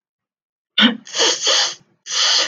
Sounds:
Sneeze